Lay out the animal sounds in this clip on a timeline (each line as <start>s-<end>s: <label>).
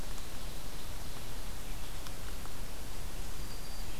3.0s-4.0s: Black-throated Green Warbler (Setophaga virens)